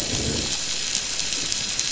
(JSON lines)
{"label": "anthrophony, boat engine", "recorder": "SoundTrap 500"}